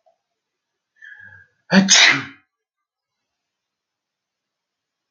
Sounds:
Sneeze